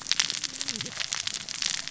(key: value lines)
label: biophony, cascading saw
recorder: SoundTrap 600 or HydroMoth